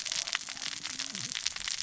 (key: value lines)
label: biophony, cascading saw
recorder: SoundTrap 600 or HydroMoth